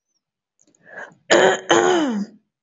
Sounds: Throat clearing